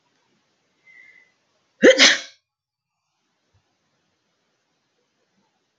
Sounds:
Sneeze